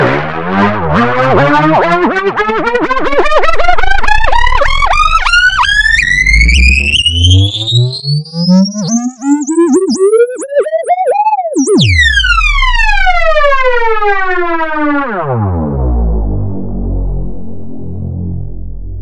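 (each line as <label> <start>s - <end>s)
A digitally processed helicopter noise. 0.0s - 19.0s
A helicopter's blades start turning, increase speed, then slow down and stop. 0.0s - 19.0s
Mechanical and rhythmic sounds with an altered electronic tone, creating a synthetic feel. 0.0s - 19.0s
The sound gradually increases in speed and intensity to a steady hum at full rotation, then slowly fades as the blades decelerate and stop. 0.0s - 19.0s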